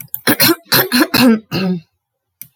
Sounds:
Throat clearing